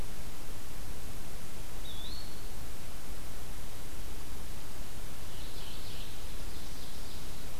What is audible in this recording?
Eastern Wood-Pewee, Mourning Warbler, Ovenbird